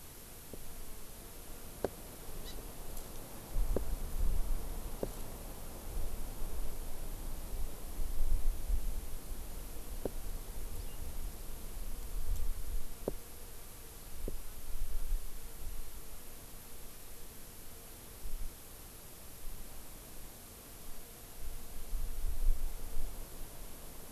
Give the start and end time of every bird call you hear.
2.4s-2.5s: Hawaii Amakihi (Chlorodrepanis virens)

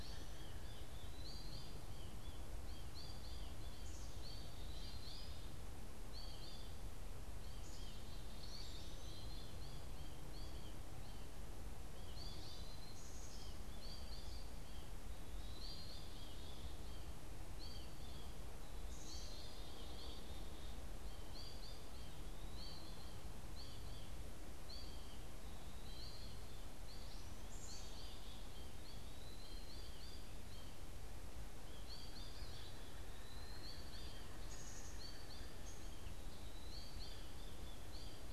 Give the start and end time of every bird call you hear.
0.0s-16.6s: Eastern Wood-Pewee (Contopus virens)
0.0s-38.3s: American Goldfinch (Spinus tristis)
7.2s-20.3s: Black-capped Chickadee (Poecile atricapillus)
22.1s-38.3s: Pileated Woodpecker (Dryocopus pileatus)
27.2s-38.3s: Black-capped Chickadee (Poecile atricapillus)
32.7s-35.9s: Eastern Wood-Pewee (Contopus virens)

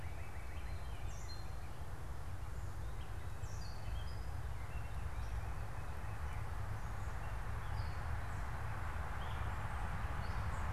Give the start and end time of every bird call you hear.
0.0s-1.2s: Northern Cardinal (Cardinalis cardinalis)
0.4s-1.8s: Black-capped Chickadee (Poecile atricapillus)

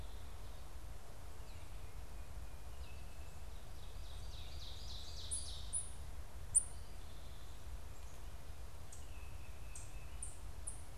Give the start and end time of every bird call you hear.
3.5s-6.0s: Ovenbird (Seiurus aurocapilla)
5.2s-10.9s: unidentified bird

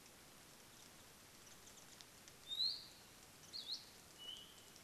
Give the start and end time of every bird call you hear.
2.4s-2.9s: Iiwi (Drepanis coccinea)
3.5s-3.9s: Hawaii Akepa (Loxops coccineus)
4.1s-4.8s: Apapane (Himatione sanguinea)

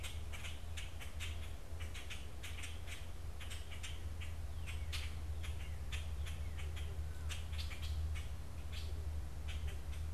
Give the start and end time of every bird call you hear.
0.0s-10.1s: Common Grackle (Quiscalus quiscula)

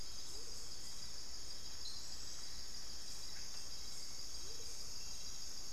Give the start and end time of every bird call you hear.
0.0s-5.7s: Amazonian Motmot (Momotus momota)
0.0s-5.7s: Hauxwell's Thrush (Turdus hauxwelli)
0.0s-5.7s: unidentified bird

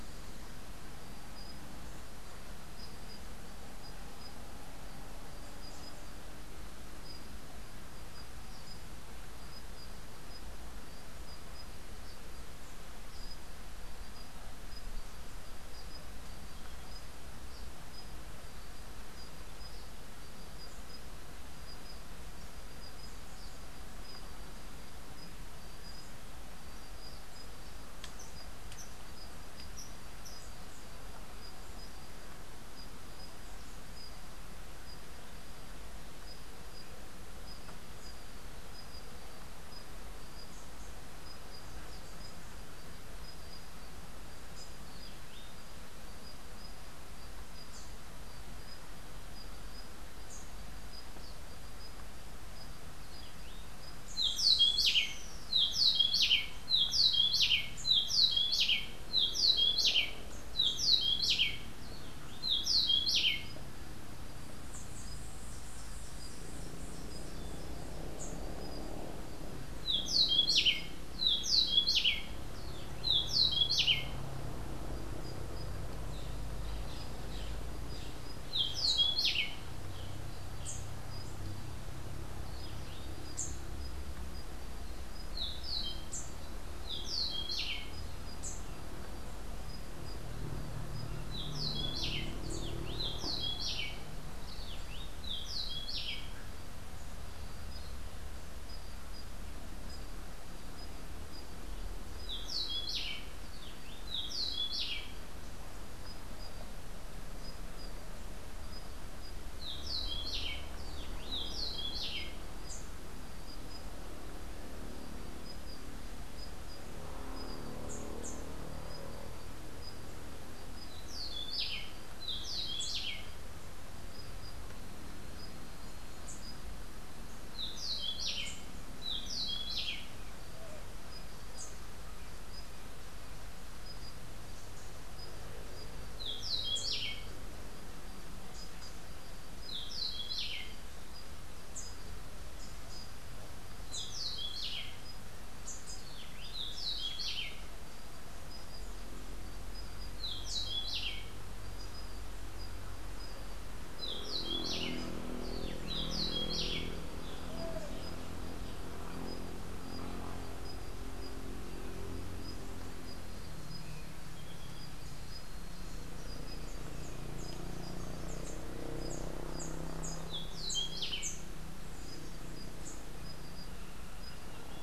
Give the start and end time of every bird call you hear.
54.1s-63.7s: Rufous-breasted Wren (Pheugopedius rutilus)
69.8s-74.3s: Rufous-breasted Wren (Pheugopedius rutilus)
78.5s-79.7s: Rufous-breasted Wren (Pheugopedius rutilus)
84.9s-88.1s: Rufous-breasted Wren (Pheugopedius rutilus)
91.0s-96.5s: Rufous-breasted Wren (Pheugopedius rutilus)
102.2s-112.4s: Rufous-breasted Wren (Pheugopedius rutilus)
120.8s-123.4s: Rufous-breasted Wren (Pheugopedius rutilus)
127.4s-130.1s: Rufous-breasted Wren (Pheugopedius rutilus)
136.1s-137.3s: Rufous-breasted Wren (Pheugopedius rutilus)
139.6s-140.8s: Rufous-breasted Wren (Pheugopedius rutilus)
143.7s-144.9s: Rufous-breasted Wren (Pheugopedius rutilus)
146.4s-147.6s: Rufous-breasted Wren (Pheugopedius rutilus)
150.1s-151.3s: Rufous-breasted Wren (Pheugopedius rutilus)
153.9s-155.1s: Rufous-breasted Wren (Pheugopedius rutilus)
155.7s-156.9s: Rufous-breasted Wren (Pheugopedius rutilus)
170.6s-171.8s: Rufous-breasted Wren (Pheugopedius rutilus)

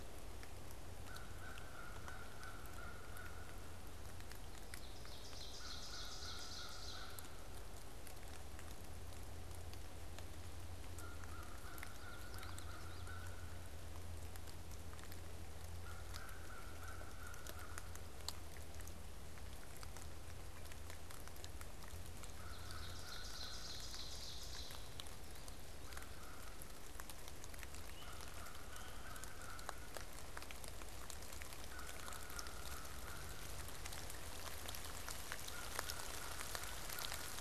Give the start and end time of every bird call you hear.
0.9s-3.9s: American Crow (Corvus brachyrhynchos)
4.4s-7.2s: Ovenbird (Seiurus aurocapilla)
5.5s-7.7s: American Crow (Corvus brachyrhynchos)
10.8s-18.0s: American Crow (Corvus brachyrhynchos)
11.5s-13.2s: Common Yellowthroat (Geothlypis trichas)
21.9s-26.7s: American Crow (Corvus brachyrhynchos)
22.3s-25.0s: Ovenbird (Seiurus aurocapilla)
27.7s-37.4s: American Crow (Corvus brachyrhynchos)

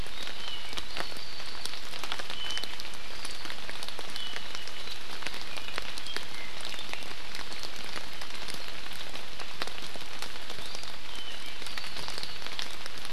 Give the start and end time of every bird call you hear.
0.1s-1.7s: Apapane (Himatione sanguinea)
2.3s-2.7s: Apapane (Himatione sanguinea)
5.5s-7.0s: Apapane (Himatione sanguinea)
11.1s-12.5s: Apapane (Himatione sanguinea)

